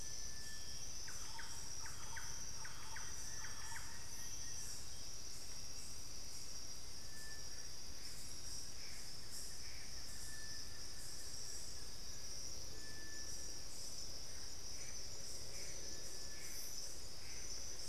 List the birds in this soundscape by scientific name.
Crypturellus cinereus, Campylorhynchus turdinus, Thamnophilus schistaceus, Cercomacra cinerascens, Xiphorhynchus guttatus